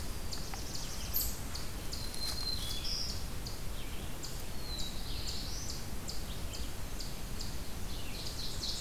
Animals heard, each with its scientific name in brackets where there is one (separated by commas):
Eastern Chipmunk (Tamias striatus), Black-throated Green Warbler (Setophaga virens), Ovenbird (Seiurus aurocapilla), Black-throated Blue Warbler (Setophaga caerulescens)